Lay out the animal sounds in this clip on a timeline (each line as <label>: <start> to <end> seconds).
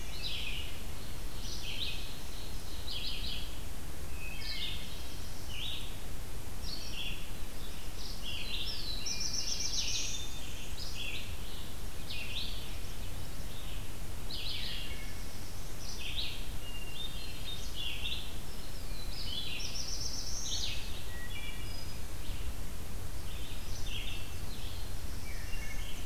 Red-eyed Vireo (Vireo olivaceus): 0.0 to 26.1 seconds
Ovenbird (Seiurus aurocapilla): 1.0 to 2.9 seconds
Wood Thrush (Hylocichla mustelina): 4.0 to 5.2 seconds
Black-throated Blue Warbler (Setophaga caerulescens): 4.4 to 5.7 seconds
Black-throated Blue Warbler (Setophaga caerulescens): 8.1 to 10.4 seconds
Hermit Thrush (Catharus guttatus): 8.8 to 9.9 seconds
Wood Thrush (Hylocichla mustelina): 14.5 to 15.4 seconds
Hermit Thrush (Catharus guttatus): 16.6 to 17.9 seconds
Black-throated Blue Warbler (Setophaga caerulescens): 18.7 to 20.9 seconds
Wood Thrush (Hylocichla mustelina): 21.0 to 22.0 seconds
Wood Thrush (Hylocichla mustelina): 25.1 to 26.1 seconds